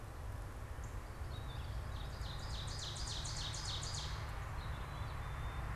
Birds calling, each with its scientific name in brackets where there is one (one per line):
Northern Cardinal (Cardinalis cardinalis)
Black-capped Chickadee (Poecile atricapillus)
Ovenbird (Seiurus aurocapilla)
Purple Finch (Haemorhous purpureus)